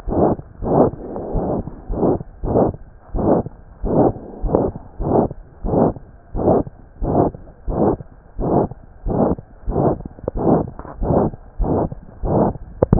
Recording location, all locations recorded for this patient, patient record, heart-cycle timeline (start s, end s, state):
pulmonary valve (PV)
aortic valve (AV)+pulmonary valve (PV)+tricuspid valve (TV)+mitral valve (MV)
#Age: Child
#Sex: Female
#Height: 117.0 cm
#Weight: 20.8 kg
#Pregnancy status: False
#Murmur: Present
#Murmur locations: aortic valve (AV)+mitral valve (MV)+pulmonary valve (PV)+tricuspid valve (TV)
#Most audible location: tricuspid valve (TV)
#Systolic murmur timing: Holosystolic
#Systolic murmur shape: Plateau
#Systolic murmur grading: III/VI or higher
#Systolic murmur pitch: High
#Systolic murmur quality: Harsh
#Diastolic murmur timing: nan
#Diastolic murmur shape: nan
#Diastolic murmur grading: nan
#Diastolic murmur pitch: nan
#Diastolic murmur quality: nan
#Outcome: Abnormal
#Campaign: 2015 screening campaign
0.00	3.10	unannotated
3.10	3.24	S1
3.24	3.37	systole
3.37	3.51	S2
3.51	3.80	diastole
3.80	3.92	S1
3.92	4.04	systole
4.04	4.20	S2
4.20	4.39	diastole
4.39	4.53	S1
4.53	4.66	systole
4.66	4.81	S2
4.81	4.97	diastole
4.97	5.07	S1
5.07	5.22	systole
5.22	5.36	S2
5.36	5.61	diastole
5.61	5.74	S1
5.74	5.87	systole
5.87	6.00	S2
6.00	6.31	diastole
6.31	6.43	S1
6.43	6.57	systole
6.57	6.71	S2
6.71	6.99	diastole
6.99	7.13	S1
7.13	7.24	systole
7.24	7.39	S2
7.39	7.64	diastole
7.64	7.78	S1
7.78	7.90	systole
7.90	8.06	S2
8.06	8.34	diastole
8.34	8.49	S1
8.49	8.61	systole
8.61	8.76	S2
8.76	9.03	diastole
9.03	9.16	S1
9.16	9.28	systole
9.28	9.43	S2
9.43	9.65	diastole
9.65	9.76	S1
9.76	9.90	systole
9.90	10.05	S2
10.05	10.32	diastole
10.32	10.45	S1
10.45	10.58	systole
10.58	10.69	S2
10.69	10.96	diastole
10.96	11.10	S1
11.10	11.23	systole
11.23	11.39	S2
11.39	11.57	diastole
11.57	11.68	S1
11.68	11.82	systole
11.82	11.96	S2
11.96	12.20	diastole
12.20	12.32	S1
12.32	12.46	systole
12.46	12.60	S2
12.60	12.99	unannotated